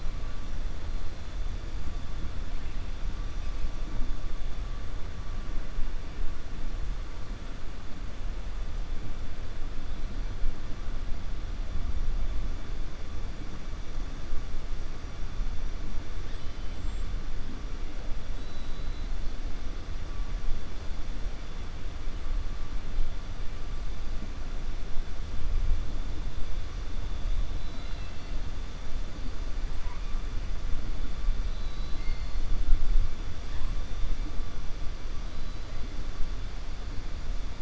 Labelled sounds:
18.3	19.1	killer whale, 3.5 to 4.3 kHz
27.5	28.3	killer whale, 1.4 to 4.5 kHz
31.5	32.4	killer whale, 2.1 to 4.9 kHz

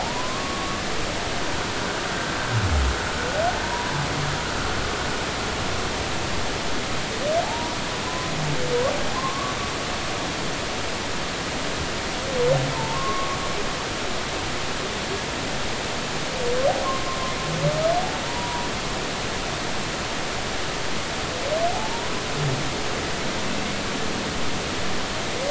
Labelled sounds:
0.0	0.8	humpback whale, 0.80 to 1.3 kHz
3.6	3.9	humpback whale, 0.90 to 1.0 kHz
7.4	7.8	humpback whale, 0.80 to 1.2 kHz
8.1	8.3	humpback whale, 0.96 to 1.1 kHz
9.2	9.5	humpback whale, 0.96 to 1.2 kHz
12.7	13.4	humpback whale, 0.83 to 1.2 kHz
16.8	17.2	humpback whale, 0.99 to 1.2 kHz
18.2	18.7	humpback whale, 0.90 to 1.0 kHz
21.7	22.1	humpback whale, 0.80 to 1.0 kHz

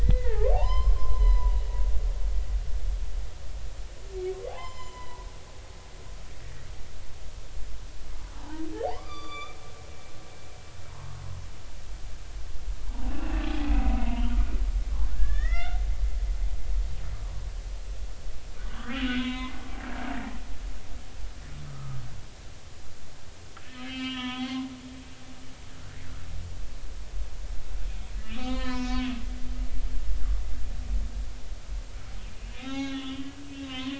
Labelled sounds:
0.0	1.6	humpback whale, 0.80 to 5.3 kHz
2.1	2.4	humpback whale, 3.9 to 4.2 kHz
4.5	5.3	humpback whale, 0.80 to 7.3 kHz
6.4	6.7	humpback whale, 1.8 to 2.0 kHz
8.3	9.6	humpback whale, 0.80 to 7.1 kHz
13.1	14.4	humpback whale, 2.0 to 3.1 kHz
15.1	15.8	humpback whale, 1.2 to 3.7 kHz
18.7	19.6	humpback whale, 0.86 to 3.9 kHz
20.1	20.4	humpback whale, 1.8 to 2.0 kHz
21.7	22.0	humpback whale, 1.2 to 1.3 kHz
23.6	24.6	humpback whale, 0.96 to 3.9 kHz
27.9	29.2	humpback whale, 0.93 to 5.1 kHz
32.5	33.2	humpback whale, 0.80 to 6.3 kHz
33.7	33.9	humpback whale, 0.96 to 1.1 kHz

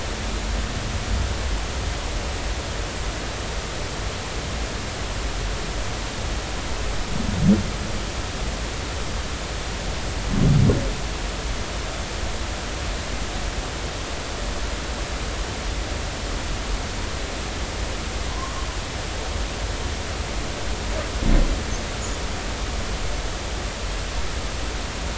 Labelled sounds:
18.3	18.6	humpback whale, 0.96 to 1.2 kHz

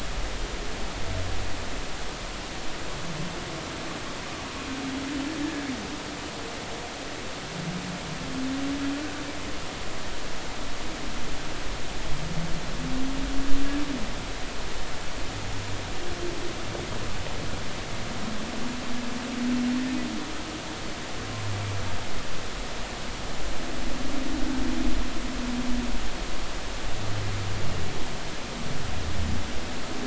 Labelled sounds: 5.4	5.7	humpback whale, 1.6 to 1.8 kHz

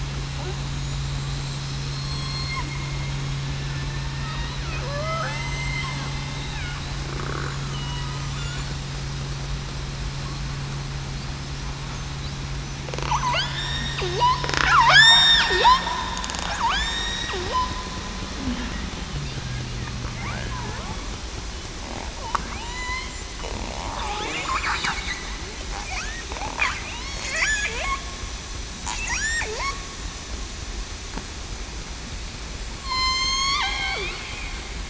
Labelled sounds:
1.0	1.3	killer whale, southern resident, 7.3 to 7.6 kHz
1.9	2.4	killer whale, southern resident, 3.3 to 7.8 kHz
4.1	4.5	killer whale, southern resident, 1.8 to 1.9 kHz
4.8	6.6	killer whale, southern resident, 0.47 to 3.7 kHz
7.7	8.1	killer whale, southern resident, 2.9 to 3.1 kHz
13.3	13.8	killer whale, southern resident, 1.4 to 1.9 kHz
14.9	15.4	killer whale, southern resident, 1.4 to 8.0 kHz
16.6	17.4	killer whale, southern resident, 0.84 to 7.6 kHz
22.5	22.9	killer whale, southern resident, 2.0 to 3.0 kHz
24.2	24.8	killer whale, southern resident, 7.0 to 7.3 kHz
27.0	27.5	killer whale, southern resident, 4.2 to 4.9 kHz
29.5	29.9	killer whale, southern resident, 0.96 to 1.2 kHz
32.8	34.1	killer whale, southern resident, 0.91 to 8.0 kHz

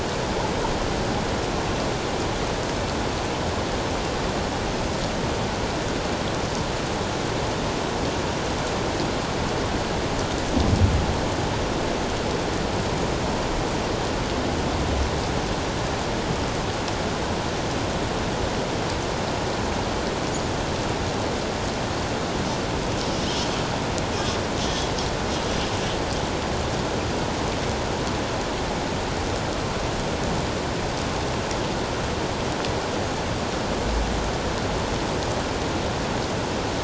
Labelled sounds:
24.6	24.9	humpback whale, 3.2 to 3.4 kHz

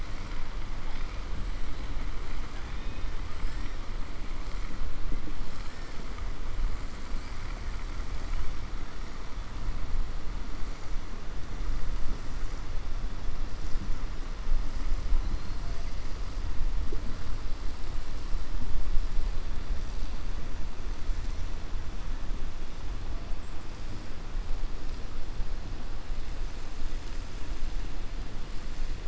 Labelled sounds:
2.5	3.1	killer whale, 0.78 to 3.8 kHz

